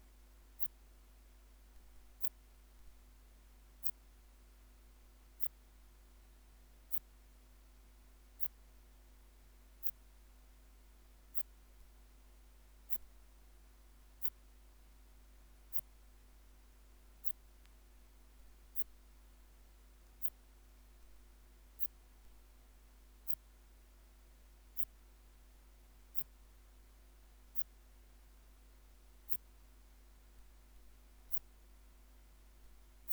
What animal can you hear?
Phaneroptera falcata, an orthopteran